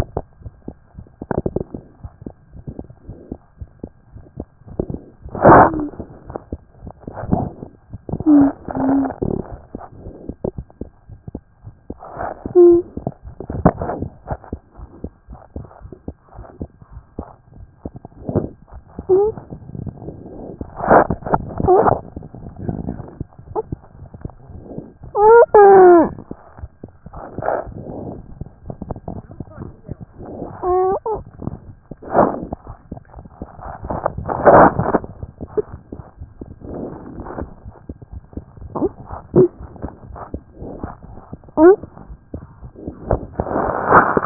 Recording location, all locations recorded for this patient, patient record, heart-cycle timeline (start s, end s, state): mitral valve (MV)
aortic valve (AV)+mitral valve (MV)
#Age: Child
#Sex: Male
#Height: 85.0 cm
#Weight: 12.1 kg
#Pregnancy status: False
#Murmur: Absent
#Murmur locations: nan
#Most audible location: nan
#Systolic murmur timing: nan
#Systolic murmur shape: nan
#Systolic murmur grading: nan
#Systolic murmur pitch: nan
#Systolic murmur quality: nan
#Diastolic murmur timing: nan
#Diastolic murmur shape: nan
#Diastolic murmur grading: nan
#Diastolic murmur pitch: nan
#Diastolic murmur quality: nan
#Outcome: Abnormal
#Campaign: 2014 screening campaign
0.00	14.16	unannotated
14.16	14.30	diastole
14.30	14.40	S1
14.40	14.52	systole
14.52	14.60	S2
14.60	14.80	diastole
14.80	14.90	S1
14.90	15.02	systole
15.02	15.12	S2
15.12	15.30	diastole
15.30	15.40	S1
15.40	15.56	systole
15.56	15.66	S2
15.66	15.84	diastole
15.84	15.94	S1
15.94	16.08	systole
16.08	16.16	S2
16.16	16.37	diastole
16.37	16.48	S1
16.48	16.62	systole
16.62	16.70	S2
16.70	16.94	diastole
16.94	17.06	S1
17.06	17.18	systole
17.18	17.26	S2
17.26	17.60	diastole
17.60	44.26	unannotated